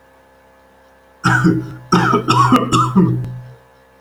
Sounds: Cough